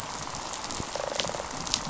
{"label": "biophony, rattle response", "recorder": "SoundTrap 500"}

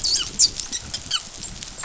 {"label": "biophony, dolphin", "recorder": "SoundTrap 500"}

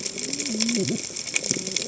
{"label": "biophony, cascading saw", "recorder": "HydroMoth"}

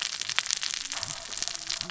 {"label": "biophony, cascading saw", "recorder": "SoundTrap 600 or HydroMoth"}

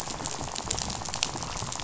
{"label": "biophony, rattle", "recorder": "SoundTrap 500"}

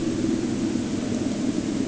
{"label": "anthrophony, boat engine", "recorder": "HydroMoth"}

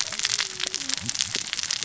{"label": "biophony, cascading saw", "recorder": "SoundTrap 600 or HydroMoth"}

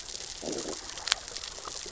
{"label": "biophony, growl", "recorder": "SoundTrap 600 or HydroMoth"}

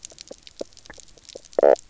{"label": "biophony, knock croak", "recorder": "SoundTrap 300"}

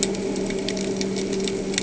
{"label": "anthrophony, boat engine", "recorder": "HydroMoth"}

